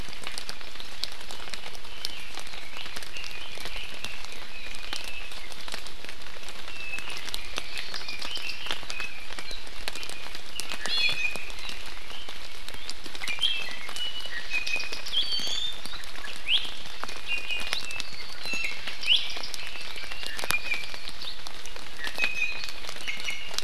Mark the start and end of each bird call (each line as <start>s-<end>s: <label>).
3.0s-5.3s: Red-billed Leiothrix (Leiothrix lutea)
7.3s-9.5s: Red-billed Leiothrix (Leiothrix lutea)
10.5s-11.5s: Iiwi (Drepanis coccinea)
13.2s-15.8s: Iiwi (Drepanis coccinea)
16.4s-16.6s: Iiwi (Drepanis coccinea)
17.2s-18.1s: Iiwi (Drepanis coccinea)
18.4s-19.2s: Iiwi (Drepanis coccinea)
19.7s-21.1s: Hawaii Amakihi (Chlorodrepanis virens)
20.4s-21.1s: Iiwi (Drepanis coccinea)
21.9s-23.6s: Iiwi (Drepanis coccinea)